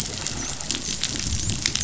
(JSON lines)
{"label": "biophony, dolphin", "recorder": "SoundTrap 500"}